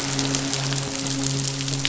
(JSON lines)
{"label": "biophony, midshipman", "recorder": "SoundTrap 500"}